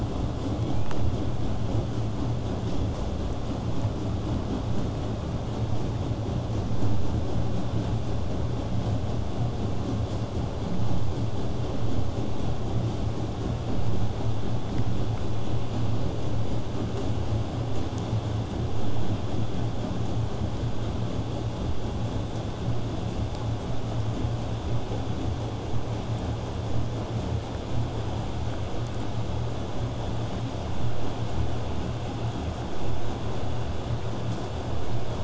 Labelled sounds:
20.7	25.7	vessel noise, 0 to 8.0 kHz

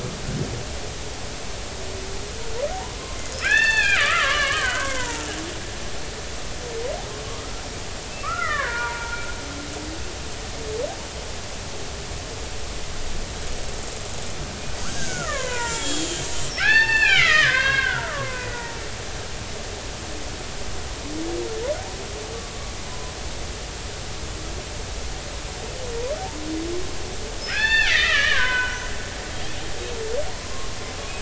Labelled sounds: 3.4	5.4	killer whale, Bigg's (transient), 0.80 to 4.5 kHz
8.2	9.2	killer whale, Bigg's (transient), 0.86 to 2.2 kHz
14.8	16.2	killer whale, Bigg's (transient), 0.86 to 3.5 kHz
16.5	19.8	killer whale, Bigg's (transient), 0.80 to 5.5 kHz
22.9	23.1	killer whale, Bigg's (transient), 0.96 to 1.1 kHz
27.4	28.9	killer whale, Bigg's (transient), 0.93 to 6.1 kHz
29.3	30.7	killer whale, Bigg's (transient), 0.90 to 3.5 kHz

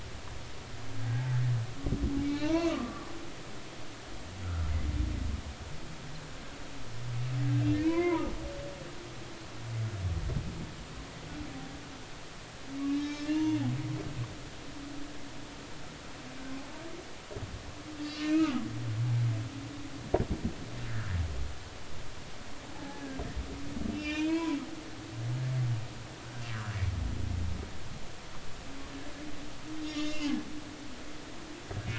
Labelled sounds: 2.2	3.1	humpback whale, 0.86 to 4.0 kHz
4.4	4.7	humpback whale, 1.2 to 1.5 kHz
7.7	8.3	humpback whale, 0.83 to 2.5 kHz
12.9	13.6	humpback whale, 2.6 to 5.6 kHz
18.2	18.5	humpback whale, 2.4 to 2.9 kHz
20.9	21.2	humpback whale, 1.3 to 1.9 kHz
22.7	23.0	humpback whale, 0.80 to 0.93 kHz
23.9	24.6	humpback whale, 0.93 to 5.6 kHz
26.5	26.8	humpback whale, 1.0 to 1.8 kHz
29.8	30.3	humpback whale, 2.0 to 5.2 kHz

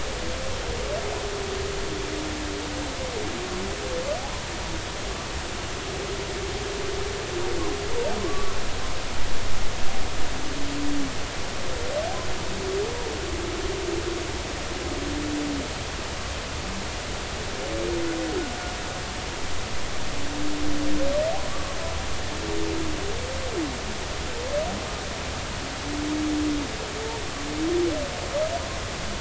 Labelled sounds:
8.2	8.6	humpback whale, 1.0 to 1.2 kHz

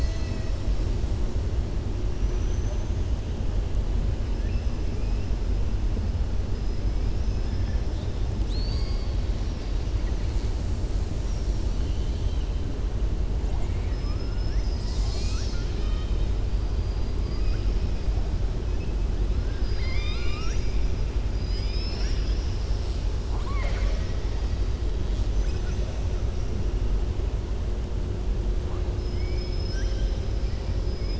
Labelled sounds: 2.3	2.8	killer whale, southern resident, 5.7 to 6.3 kHz
11.7	12.4	killer whale, southern resident, 2.8 to 4.0 kHz
13.4	14.6	killer whale, southern resident, 0.64 to 2.8 kHz
19.4	20.8	killer whale, southern resident, 1.2 to 7.2 kHz
21.3	24.2	killer whale, southern resident, 0.57 to 7.3 kHz

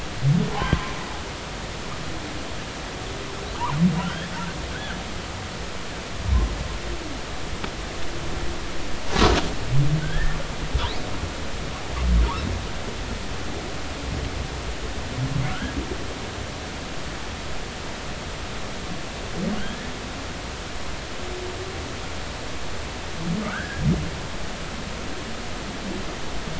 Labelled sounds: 0.5	0.7	humpback whale, 0.80 to 1.2 kHz
4.0	4.3	humpback whale, 1.3 to 3.4 kHz
10.0	10.4	humpback whale, 1.4 to 1.9 kHz
15.5	15.8	humpback whale, 1.3 to 1.8 kHz
19.6	19.9	humpback whale, 1.4 to 1.9 kHz
23.5	23.8	humpback whale, 1.2 to 1.8 kHz

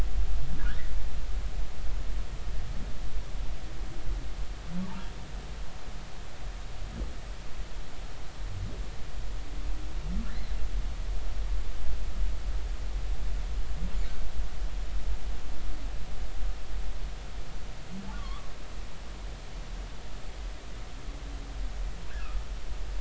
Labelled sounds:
0.6	0.9	humpback whale, 1.4 to 2.0 kHz
4.8	5.1	humpback whale, 0.83 to 1.2 kHz
18.1	18.5	humpback whale, 1.0 to 3.5 kHz
22.2	22.4	humpback whale, 1.2 to 1.5 kHz

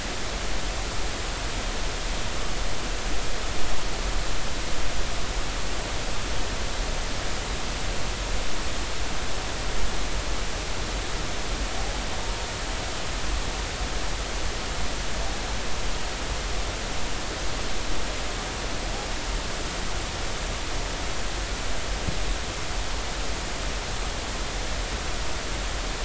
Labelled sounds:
12.2	12.5	humpback whale, 0.90 to 0.99 kHz

